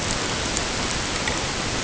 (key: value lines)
label: ambient
recorder: HydroMoth